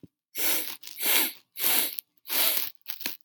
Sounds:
Sniff